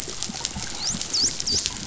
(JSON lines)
{"label": "biophony, dolphin", "recorder": "SoundTrap 500"}